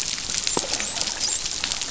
{"label": "biophony, dolphin", "recorder": "SoundTrap 500"}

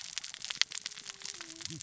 {"label": "biophony, cascading saw", "recorder": "SoundTrap 600 or HydroMoth"}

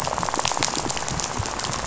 {"label": "biophony, rattle", "recorder": "SoundTrap 500"}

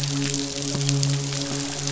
{"label": "biophony, midshipman", "recorder": "SoundTrap 500"}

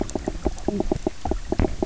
{"label": "biophony, knock croak", "recorder": "SoundTrap 300"}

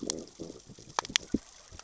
{"label": "biophony, growl", "recorder": "SoundTrap 600 or HydroMoth"}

